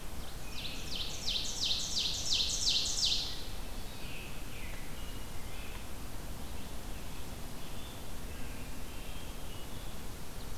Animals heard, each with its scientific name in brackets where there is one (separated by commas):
American Robin (Turdus migratorius), Ovenbird (Seiurus aurocapilla), Red-eyed Vireo (Vireo olivaceus)